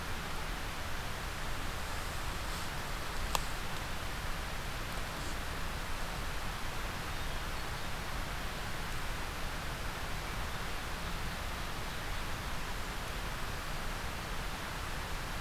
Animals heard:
forest ambience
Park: Marsh-Billings-Rockefeller National Historical Park